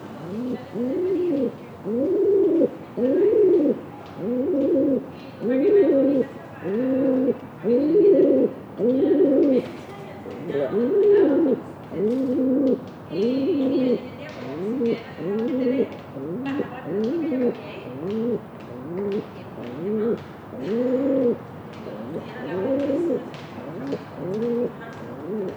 Is there other sounds besides the bird?
yes